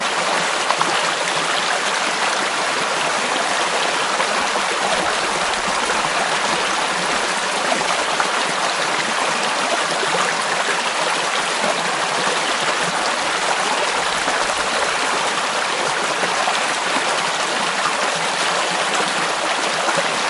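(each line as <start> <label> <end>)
0.0 A water stream flows loudly, continuously, and uniformly. 20.3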